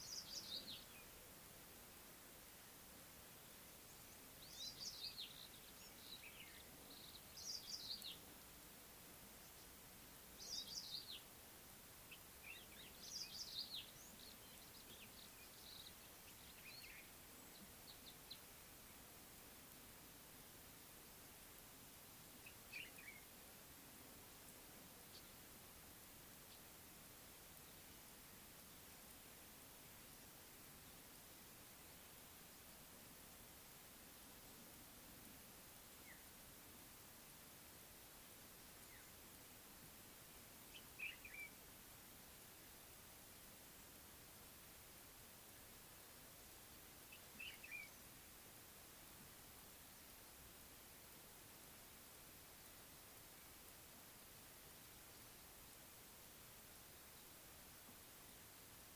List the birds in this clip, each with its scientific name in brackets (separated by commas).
Common Bulbul (Pycnonotus barbatus)